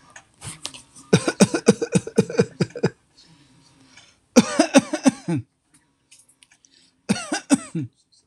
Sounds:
Cough